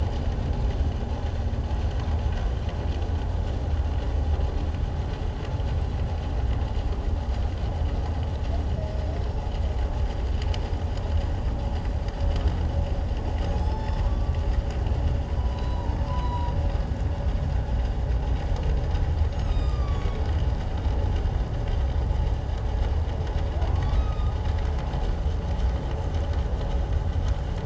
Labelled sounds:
8.9	9.2	humpback whale, 5.1 to 5.4 kHz
13.6	14.4	humpback whale, 0.78 to 7.9 kHz
15.4	16.5	humpback whale, 0.88 to 4.0 kHz
19.3	20.2	humpback whale, 1.1 to 7.5 kHz
23.7	24.4	humpback whale, 0.97 to 4.0 kHz

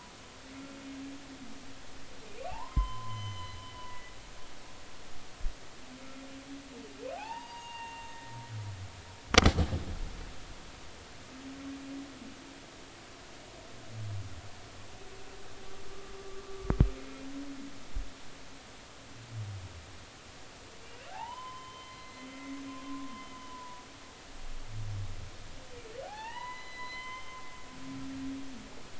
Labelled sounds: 2.3	4.1	humpback whale, 0.80 to 6.1 kHz
7.1	8.3	humpback whale, 0.80 to 4.8 kHz
21.1	22.3	humpback whale, 0.80 to 4.2 kHz
23.1	23.8	humpback whale, 0.93 to 3.1 kHz
26.1	27.4	humpback whale, 0.80 to 4.1 kHz

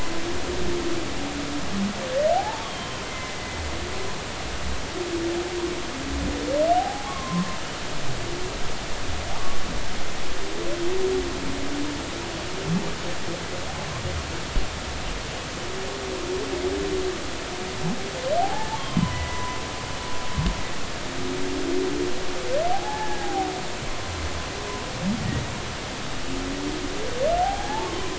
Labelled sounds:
2.3	3.4	humpback whale, 0.80 to 3.4 kHz
6.7	7.6	humpback whale, 0.80 to 1.2 kHz
18.4	19.6	humpback whale, 0.80 to 3.3 kHz
22.7	23.5	humpback whale, 0.80 to 1.8 kHz
27.4	28.1	humpback whale, 0.80 to 1.2 kHz

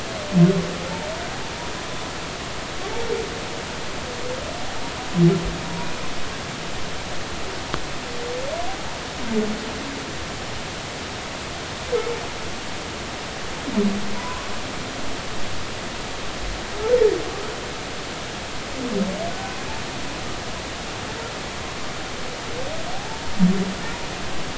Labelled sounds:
14.2	14.5	humpback whale, 0.93 to 1.2 kHz
22.9	23.2	humpback whale, 0.80 to 0.93 kHz

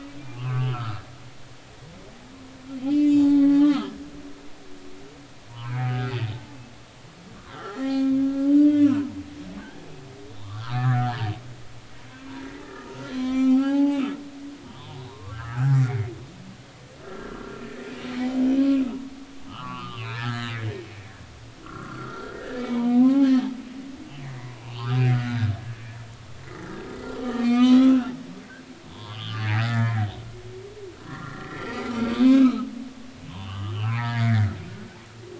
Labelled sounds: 0.0	1.0	humpback whale, 0.96 to 2.7 kHz
2.9	3.9	humpback whale, 0.80 to 7.4 kHz
5.5	6.1	humpback whale, 0.83 to 1.4 kHz
7.5	8.2	humpback whale, 0.80 to 3.3 kHz
8.5	9.2	humpback whale, 0.90 to 2.9 kHz
10.3	11.2	humpback whale, 0.80 to 3.8 kHz
12.9	14.1	humpback whale, 0.80 to 7.1 kHz
14.6	15.8	humpback whale, 0.80 to 3.8 kHz
17.0	17.6	humpback whale, 1.2 to 1.4 kHz
18.6	18.9	humpback whale, 2.3 to 2.8 kHz
19.5	20.5	humpback whale, 0.80 to 4.4 kHz
21.6	23.4	humpback whale, 0.80 to 4.5 kHz
24.6	26.1	humpback whale, 0.80 to 3.2 kHz
27.2	28.0	humpback whale, 1.1 to 6.2 kHz
28.9	30.1	humpback whale, 0.83 to 3.6 kHz
31.0	32.7	humpback whale, 0.96 to 4.3 kHz
33.3	34.5	humpback whale, 0.80 to 3.2 kHz

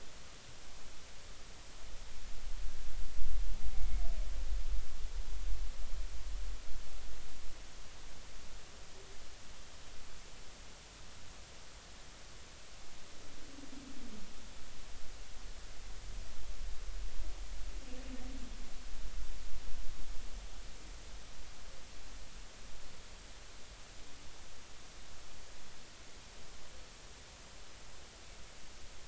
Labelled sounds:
3.8	4.1	humpback whale, 2.1 to 2.3 kHz

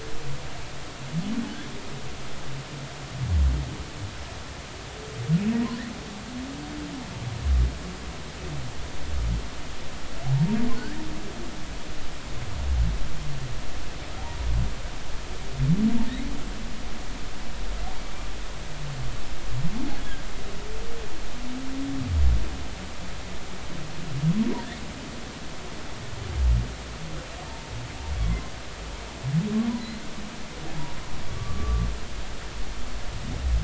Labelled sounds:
31.3	31.9	humpback whale, 1.1 to 1.2 kHz

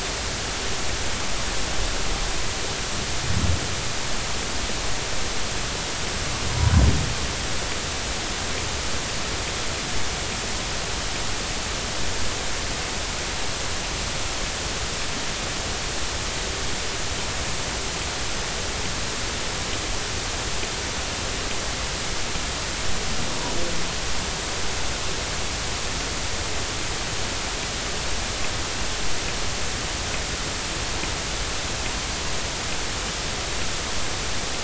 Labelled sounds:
6.5	6.7	humpback whale, 0.93 to 1.1 kHz

